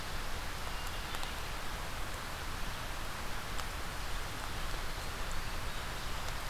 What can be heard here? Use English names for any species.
forest ambience